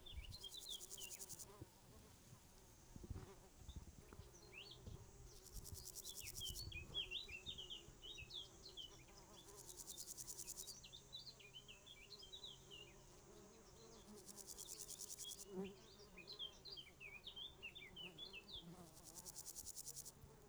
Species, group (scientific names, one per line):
Pseudochorthippus parallelus
Orthoptera